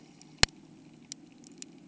{"label": "anthrophony, boat engine", "recorder": "HydroMoth"}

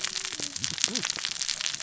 {"label": "biophony, cascading saw", "recorder": "SoundTrap 600 or HydroMoth"}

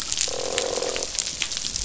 {"label": "biophony, croak", "recorder": "SoundTrap 500"}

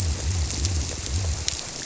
{"label": "biophony", "recorder": "SoundTrap 300"}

